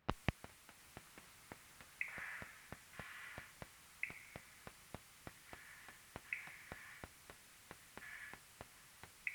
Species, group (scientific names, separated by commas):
Cyrtaspis scutata, Orthoptera